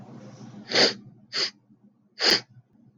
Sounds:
Sniff